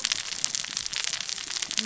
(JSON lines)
{"label": "biophony, cascading saw", "recorder": "SoundTrap 600 or HydroMoth"}